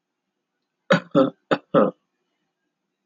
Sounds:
Cough